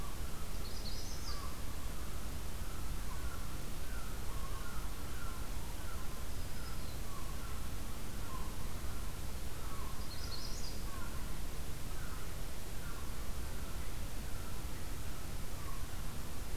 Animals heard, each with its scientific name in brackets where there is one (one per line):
Black-throated Green Warbler (Setophaga virens)
Magnolia Warbler (Setophaga magnolia)
American Herring Gull (Larus smithsonianus)